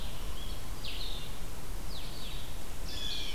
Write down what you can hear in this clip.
Blue-headed Vireo, Blue Jay